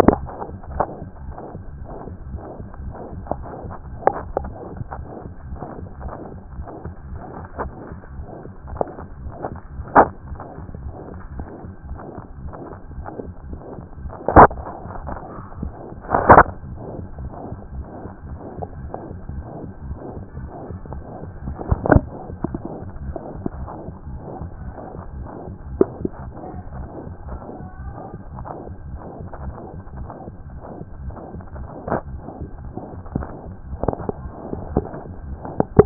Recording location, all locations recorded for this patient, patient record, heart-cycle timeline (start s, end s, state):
mitral valve (MV)
aortic valve (AV)+pulmonary valve (PV)+tricuspid valve (TV)+mitral valve (MV)
#Age: Child
#Sex: Female
#Height: 144.0 cm
#Weight: 38.7 kg
#Pregnancy status: False
#Murmur: Present
#Murmur locations: aortic valve (AV)+mitral valve (MV)+pulmonary valve (PV)+tricuspid valve (TV)
#Most audible location: pulmonary valve (PV)
#Systolic murmur timing: Mid-systolic
#Systolic murmur shape: Diamond
#Systolic murmur grading: III/VI or higher
#Systolic murmur pitch: Medium
#Systolic murmur quality: Blowing
#Diastolic murmur timing: nan
#Diastolic murmur shape: nan
#Diastolic murmur grading: nan
#Diastolic murmur pitch: nan
#Diastolic murmur quality: nan
#Outcome: Abnormal
#Campaign: 2014 screening campaign
0.00	27.23	unannotated
27.23	27.28	diastole
27.28	27.40	S1
27.40	27.58	systole
27.58	27.68	S2
27.68	27.82	diastole
27.82	27.94	S1
27.94	28.12	systole
28.12	28.18	S2
28.18	28.34	diastole
28.34	28.46	S1
28.46	28.66	systole
28.66	28.76	S2
28.76	28.88	diastole
28.88	29.00	S1
29.00	29.18	systole
29.18	29.28	S2
29.28	29.42	diastole
29.42	29.54	S1
29.54	29.64	systole
29.64	29.70	S2
29.70	29.96	diastole
29.96	30.08	S1
30.08	30.26	systole
30.26	30.34	S2
30.34	30.52	diastole
30.52	30.60	S1
30.60	30.80	systole
30.80	30.84	S2
30.84	31.02	diastole
31.02	31.16	S1
31.16	31.34	systole
31.34	31.44	S2
31.44	31.58	diastole
31.58	31.68	S1
31.68	35.86	unannotated